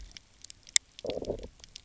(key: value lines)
label: biophony, low growl
recorder: SoundTrap 300